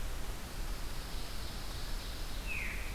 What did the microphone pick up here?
Ovenbird, Pine Warbler, Veery